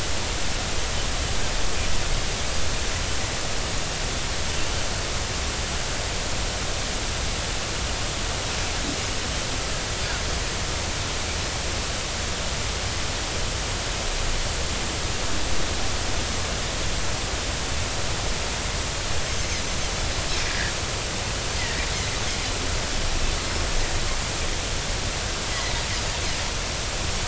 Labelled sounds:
20.5	20.7	Pacific white-sided dolphin, 1.6 to 2.0 kHz

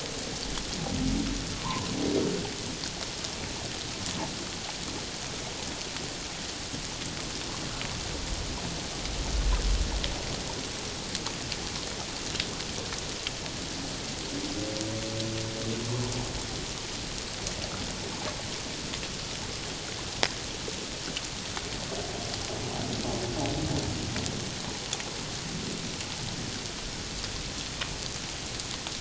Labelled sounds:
1.6	1.9	humpback whale, 0.84 to 1.2 kHz

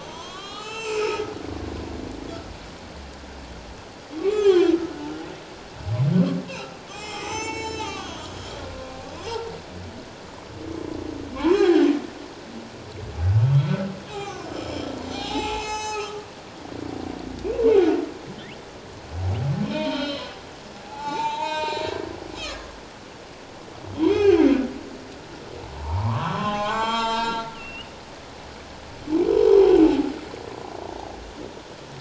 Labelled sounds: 0.0	1.2	humpback whale, 0.78 to 7.7 kHz
4.2	4.8	humpback whale, 0.97 to 6.4 kHz
6.9	8.2	humpback whale, 0.78 to 7.7 kHz
8.7	9.4	humpback whale, 1.0 to 5.2 kHz
11.3	12.0	humpback whale, 0.78 to 7.4 kHz
13.4	16.3	humpback whale, 0.78 to 7.9 kHz
19.6	20.4	humpback whale, 0.88 to 5.3 kHz
20.8	22.0	humpback whale, 0.78 to 7.5 kHz
22.5	22.8	humpback whale, 1.6 to 1.8 kHz
23.9	24.4	humpback whale, 0.78 to 6.4 kHz
25.8	28.0	humpback whale, 0.78 to 7.5 kHz

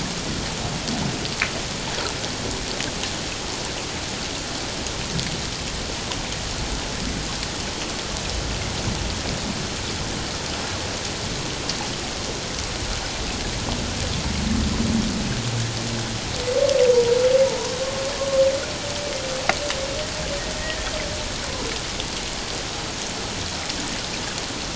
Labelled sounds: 17.4	17.7	humpback whale, 0.88 to 1.1 kHz
20.6	20.9	humpback whale, 1.8 to 2.0 kHz

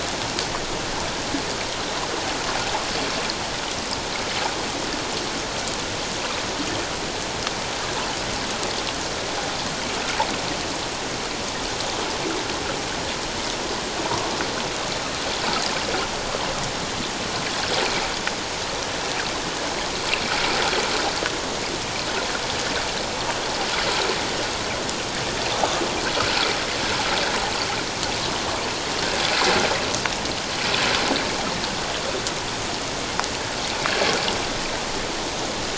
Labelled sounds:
14.0	14.3	water noise, 0.88 to 1.2 kHz

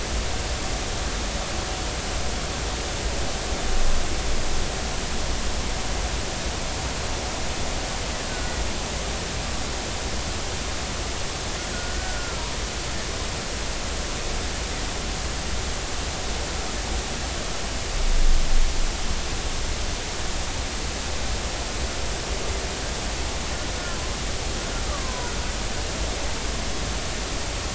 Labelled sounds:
8.3	8.6	killer whale, Bigg's (transient), 1.4 to 1.6 kHz
11.7	12.4	killer whale, Bigg's (transient), 1.2 to 1.6 kHz
24.9	25.3	killer whale, Bigg's (transient), 0.93 to 1.3 kHz

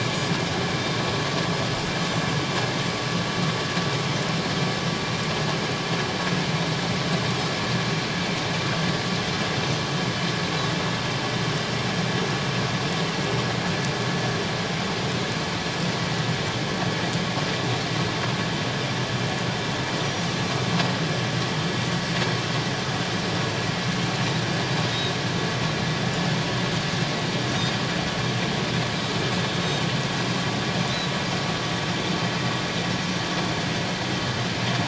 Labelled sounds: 20.0	20.3	Pacific white-sided dolphin, 5.6 to 5.9 kHz
28.9	29.2	Pacific white-sided dolphin, 3.8 to 4.1 kHz

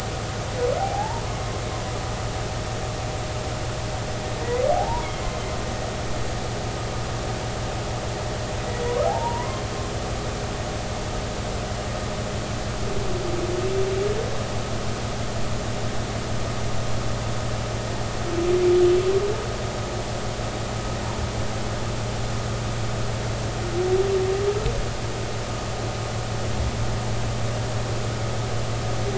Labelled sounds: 4.7	5.1	humpback whale, 0.80 to 1.0 kHz
9.0	9.6	humpback whale, 0.80 to 1.1 kHz

